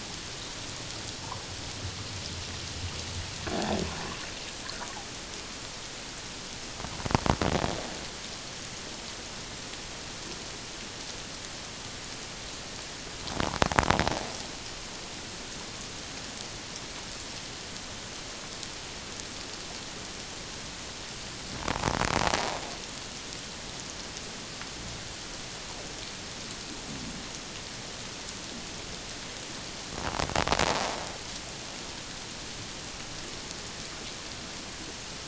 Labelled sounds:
3.5	3.8	fish, 0.78 to 0.91 kHz

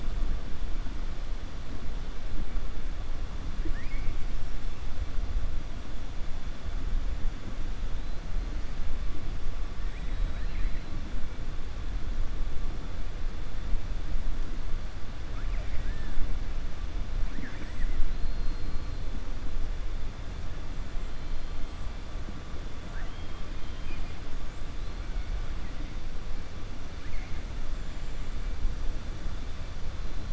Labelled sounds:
3.5	4.2	killer whale, 0.30 to 2.6 kHz
9.8	10.9	killer whale, 1.6 to 4.1 kHz
15.2	16.1	killer whale, 1.1 to 3.1 kHz
22.8	24.2	killer whale, 0.65 to 4.7 kHz
27.0	27.4	killer whale, 1.7 to 2.5 kHz

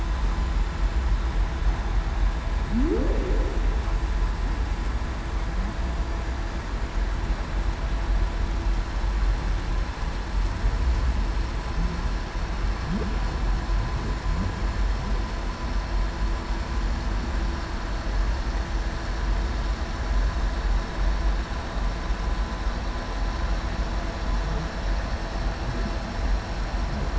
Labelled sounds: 2.7	3.1	humpback whale, 0.19 to 0.58 kHz

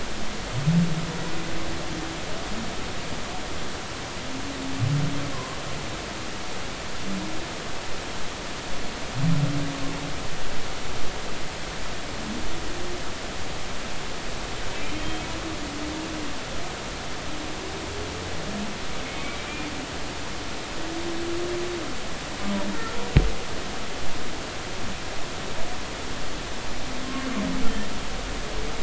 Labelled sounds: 5.3	5.6	humpback whale, 0.96 to 1.1 kHz
19.0	19.4	humpback whale, 2.1 to 2.4 kHz

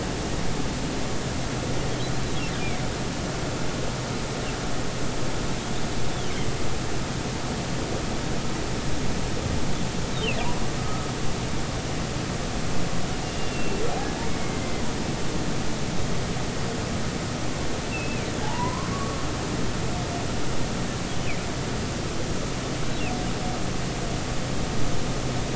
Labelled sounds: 13.4	14.8	humpback whale, 1.9 to 2.8 kHz
17.9	19.2	humpback whale, 0.80 to 2.8 kHz

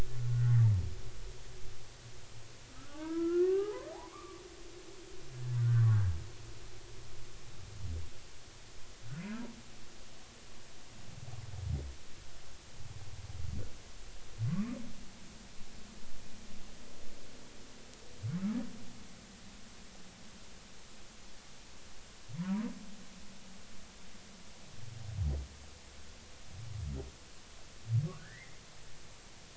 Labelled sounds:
0.3	0.6	humpback whale, 1.3 to 1.6 kHz
2.7	4.4	humpback whale, 0.80 to 1.9 kHz
5.6	5.9	humpback whale, 1.3 to 1.8 kHz
14.5	14.8	humpback whale, 1.0 to 1.3 kHz
22.4	22.7	humpback whale, 0.90 to 1.2 kHz
28.2	28.6	humpback whale, 1.4 to 2.2 kHz

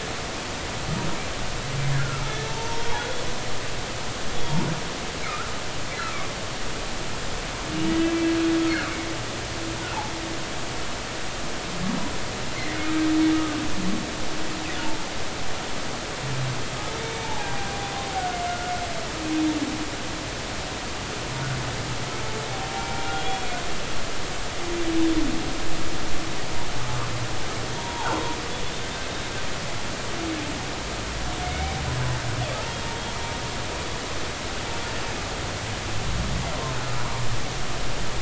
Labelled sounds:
1.9	3.1	humpback whale, 0.86 to 3.4 kHz
4.3	4.6	humpback whale, 3.2 to 3.5 kHz
5.2	5.5	humpback whale, 1.2 to 1.5 kHz
7.7	8.0	humpback whale, 2.8 to 2.9 kHz
17.0	18.7	humpback whale, 0.80 to 2.3 kHz
22.8	23.4	humpback whale, 0.90 to 3.4 kHz
27.8	28.2	humpback whale, 0.80 to 0.99 kHz
31.4	31.8	humpback whale, 2.0 to 2.3 kHz

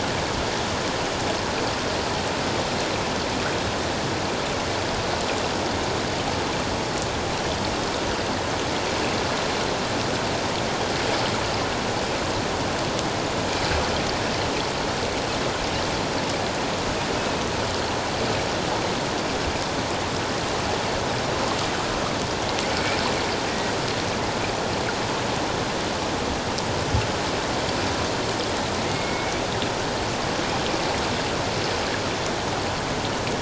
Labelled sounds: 22.7	23.7	killer whale, Bigg's (transient), 1.8 to 2.4 kHz
28.8	29.3	killer whale, Bigg's (transient), 2.1 to 2.3 kHz

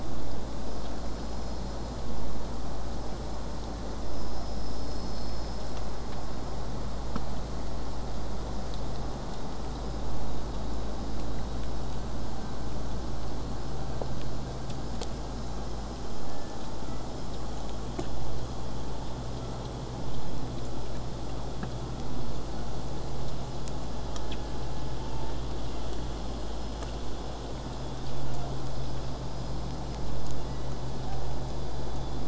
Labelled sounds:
0.0	5.0	vessel noise, 0 to 8.0 kHz
16.3	17.1	killer whale, southern resident, J pod, 1.1 to 2.1 kHz
19.1	19.6	killer whale, southern resident, J pod, 1.0 to 2.0 kHz
22.3	22.8	killer whale, southern resident, J pod, 0.80 to 1.6 kHz
24.1	26.0	killer whale, southern resident, J pod, 0.54 to 1.9 kHz
26.7	30.0	killer whale, southern resident, J pod, 0.47 to 8.0 kHz

